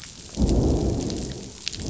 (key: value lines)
label: biophony, growl
recorder: SoundTrap 500